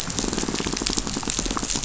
{"label": "biophony, rattle", "recorder": "SoundTrap 500"}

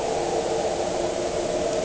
{"label": "anthrophony, boat engine", "recorder": "HydroMoth"}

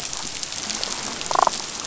{"label": "biophony, damselfish", "recorder": "SoundTrap 500"}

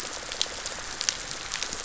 {"label": "biophony", "recorder": "SoundTrap 500"}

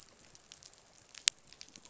{"label": "biophony", "recorder": "SoundTrap 500"}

